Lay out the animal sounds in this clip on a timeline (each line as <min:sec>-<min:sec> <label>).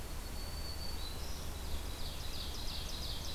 0:00.0-0:01.6 Black-throated Green Warbler (Setophaga virens)
0:01.2-0:03.3 Ovenbird (Seiurus aurocapilla)